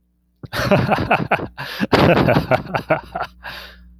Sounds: Laughter